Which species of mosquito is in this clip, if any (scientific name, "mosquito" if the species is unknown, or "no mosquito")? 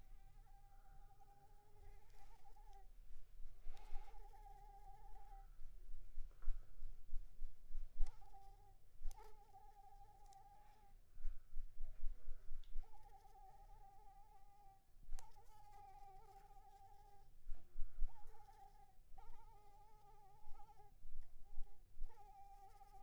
Anopheles arabiensis